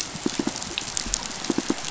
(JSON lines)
{"label": "biophony, pulse", "recorder": "SoundTrap 500"}